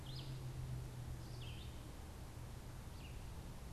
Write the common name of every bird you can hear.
Red-eyed Vireo